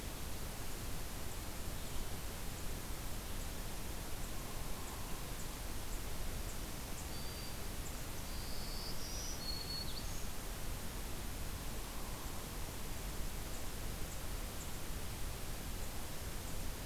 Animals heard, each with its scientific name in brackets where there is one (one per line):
Black-throated Green Warbler (Setophaga virens)
Hairy Woodpecker (Dryobates villosus)